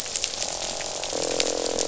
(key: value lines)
label: biophony, croak
recorder: SoundTrap 500